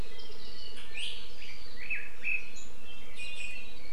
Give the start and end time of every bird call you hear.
0.2s-0.6s: Warbling White-eye (Zosterops japonicus)
1.4s-2.6s: Red-billed Leiothrix (Leiothrix lutea)
3.2s-3.9s: Iiwi (Drepanis coccinea)

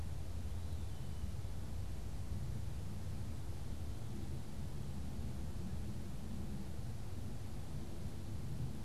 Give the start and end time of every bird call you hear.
0.3s-1.5s: Eastern Wood-Pewee (Contopus virens)

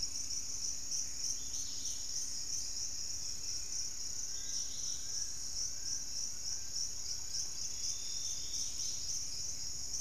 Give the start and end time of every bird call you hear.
0.0s-10.0s: Dusky-capped Greenlet (Pachysylvia hypoxantha)
1.6s-4.1s: unidentified bird
3.3s-7.8s: Fasciated Antshrike (Cymbilaimus lineatus)
5.1s-9.8s: Gray Antwren (Myrmotherula menetriesii)

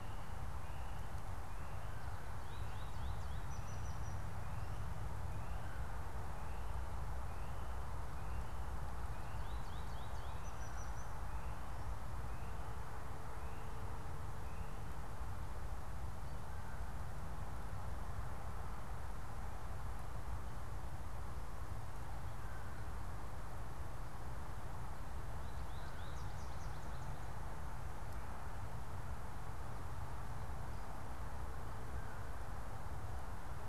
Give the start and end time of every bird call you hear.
2.3s-4.5s: American Goldfinch (Spinus tristis)
9.0s-11.2s: American Goldfinch (Spinus tristis)
25.1s-27.2s: American Goldfinch (Spinus tristis)

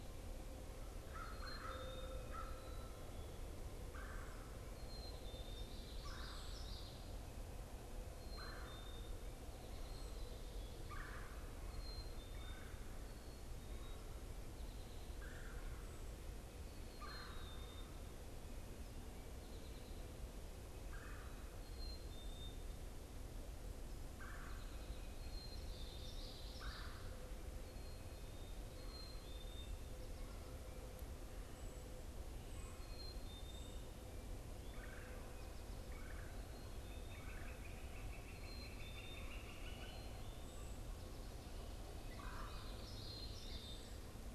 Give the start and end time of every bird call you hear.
0.0s-12.8s: Black-capped Chickadee (Poecile atricapillus)
0.0s-13.1s: Red-bellied Woodpecker (Melanerpes carolinus)
1.0s-2.8s: American Crow (Corvus brachyrhynchos)
5.9s-7.1s: Common Yellowthroat (Geothlypis trichas)
13.7s-44.3s: Black-capped Chickadee (Poecile atricapillus)
15.0s-27.3s: Red-bellied Woodpecker (Melanerpes carolinus)
25.5s-27.0s: Common Yellowthroat (Geothlypis trichas)
34.7s-37.7s: Red-bellied Woodpecker (Melanerpes carolinus)
37.0s-40.3s: Northern Flicker (Colaptes auratus)
42.3s-42.9s: Red-bellied Woodpecker (Melanerpes carolinus)
42.4s-44.2s: Common Yellowthroat (Geothlypis trichas)

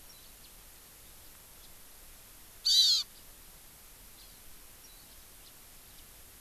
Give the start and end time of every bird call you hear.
0.0s-0.4s: Warbling White-eye (Zosterops japonicus)
2.6s-3.1s: Hawaii Amakihi (Chlorodrepanis virens)
4.1s-4.4s: Hawaii Amakihi (Chlorodrepanis virens)
4.8s-5.1s: Warbling White-eye (Zosterops japonicus)
5.4s-5.5s: House Finch (Haemorhous mexicanus)

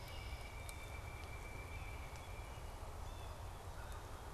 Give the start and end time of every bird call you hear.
0.0s-3.0s: Pileated Woodpecker (Dryocopus pileatus)
0.5s-3.6s: Blue Jay (Cyanocitta cristata)

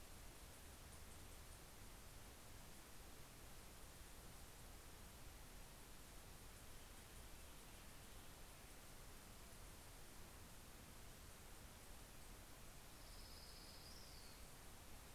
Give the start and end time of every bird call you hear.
12.5s-15.1s: Orange-crowned Warbler (Leiothlypis celata)

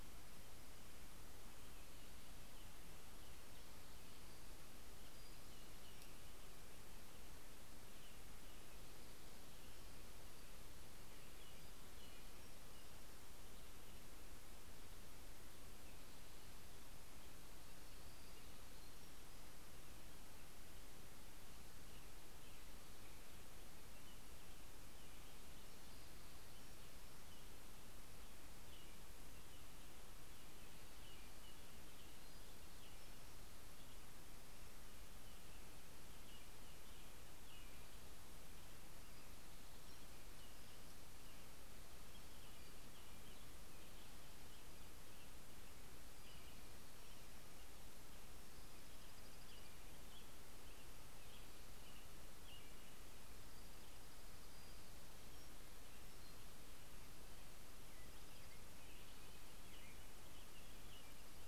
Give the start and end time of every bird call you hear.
0.0s-13.7s: American Robin (Turdus migratorius)
3.5s-6.3s: Pacific-slope Flycatcher (Empidonax difficilis)
10.0s-13.2s: Pacific-slope Flycatcher (Empidonax difficilis)
17.8s-19.8s: Pacific-slope Flycatcher (Empidonax difficilis)
21.6s-53.1s: American Robin (Turdus migratorius)
25.3s-27.0s: Pacific-slope Flycatcher (Empidonax difficilis)
31.6s-34.0s: Pacific-slope Flycatcher (Empidonax difficilis)
38.8s-40.6s: Pacific-slope Flycatcher (Empidonax difficilis)
42.0s-43.7s: Pacific-slope Flycatcher (Empidonax difficilis)
45.5s-47.6s: Pacific-slope Flycatcher (Empidonax difficilis)
48.4s-50.1s: Dark-eyed Junco (Junco hyemalis)
53.0s-54.9s: Dark-eyed Junco (Junco hyemalis)
54.3s-57.0s: Pacific-slope Flycatcher (Empidonax difficilis)
57.6s-61.5s: American Robin (Turdus migratorius)

